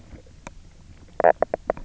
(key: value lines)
label: biophony, knock croak
recorder: SoundTrap 300